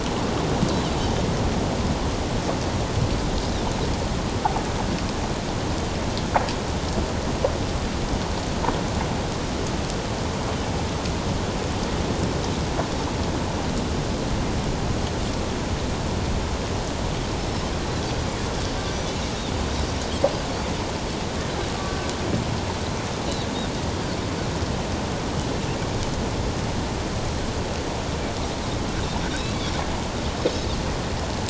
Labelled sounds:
17.4	17.7	Pacific white-sided dolphin, 5.2 to 5.4 kHz
29.3	29.6	Pacific white-sided dolphin, 3.6 to 4.0 kHz

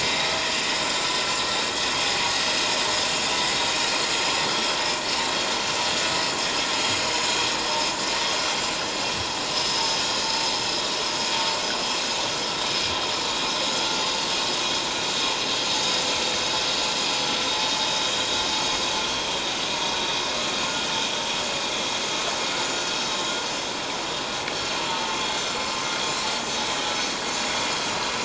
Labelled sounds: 0.5	0.8	vessel noise, 2.8 to 3.0 kHz
4.0	4.8	vessel noise, 3.2 to 7.0 kHz
9.5	9.9	vessel noise, 4.9 to 5.2 kHz
22.6	22.9	vessel noise, 6.9 to 7.1 kHz
24.9	25.2	vessel noise, 0.84 to 0.97 kHz

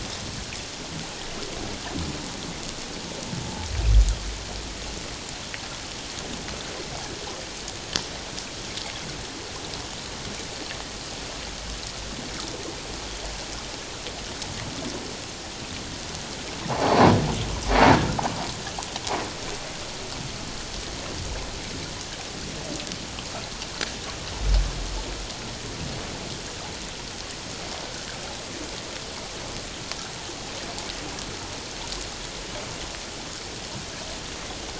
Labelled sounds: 16.7	17.1	humpback whale, 0.78 to 1.1 kHz

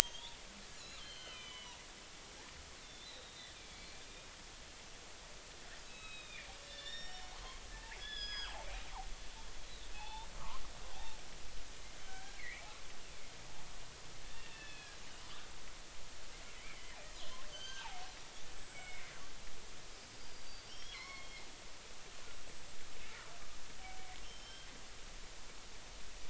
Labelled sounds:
0.0	0.4	killer whale, northern resident, G clan, 3.0 to 3.8 kHz
0.8	1.6	killer whale, northern resident, G clan, 2.0 to 4.4 kHz
2.0	4.3	killer whale, northern resident, G clan, 2.1 to 4.1 kHz
5.9	7.6	killer whale, northern resident, G clan, 0.80 to 5.6 kHz
8.0	8.6	killer whale, northern resident, G clan, 1.2 to 6.8 kHz
9.9	10.3	killer whale, northern resident, G clan, 0.80 to 3.7 kHz
12.0	12.7	killer whale, northern resident, G clan, 1.5 to 2.4 kHz
14.3	15.0	killer whale, northern resident, G clan, 1.6 to 3.5 kHz
16.6	17.9	killer whale, northern resident, G clan, 1.4 to 6.4 kHz
18.4	19.2	killer whale, northern resident, G clan, 1.9 to 7.9 kHz
20.2	21.4	killer whale, northern resident, G clan, 0.96 to 5.7 kHz
22.2	22.6	killer whale, northern resident, G clan, 7.7 to 7.9 kHz
24.2	24.7	killer whale, northern resident, G clan, 3.0 to 5.5 kHz

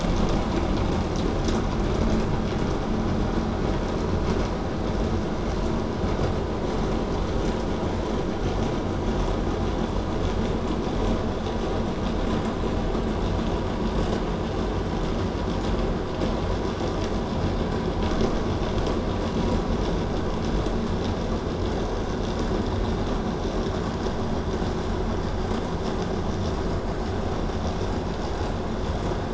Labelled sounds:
0.0	1.0	vessel noise, 0.13 to 8.0 kHz

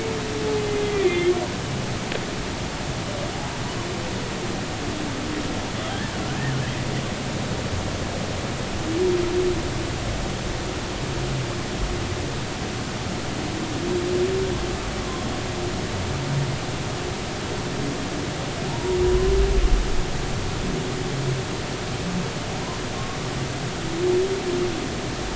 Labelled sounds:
1.0	1.3	humpback whale, 2.0 to 2.2 kHz
18.7	19.0	humpback whale, 0.80 to 1.0 kHz

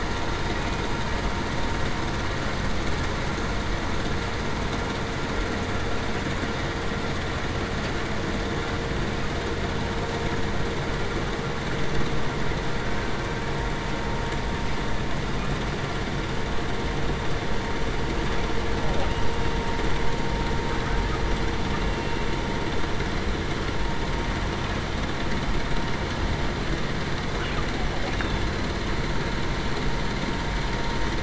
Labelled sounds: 21.9	22.2	killer whale, Bigg's (transient), 2.7 to 2.8 kHz

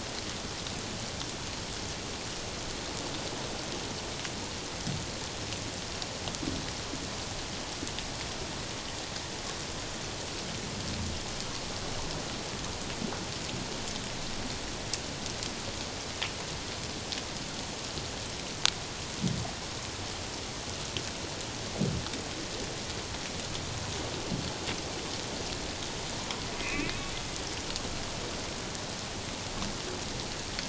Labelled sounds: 26.6	26.9	humpback whale, 2.0 to 2.7 kHz

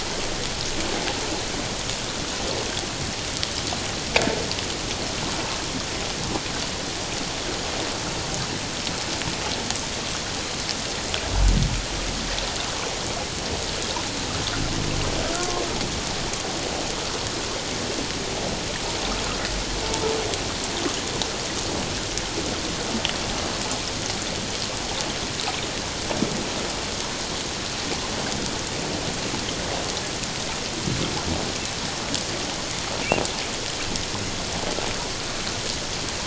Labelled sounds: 15.4	15.6	humpback whale, 0.94 to 1.1 kHz

